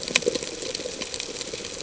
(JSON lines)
{"label": "ambient", "recorder": "HydroMoth"}